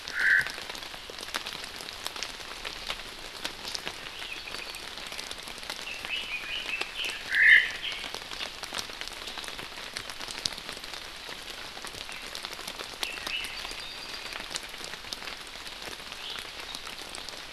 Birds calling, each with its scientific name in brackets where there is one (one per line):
Apapane (Himatione sanguinea)
Red-billed Leiothrix (Leiothrix lutea)
Omao (Myadestes obscurus)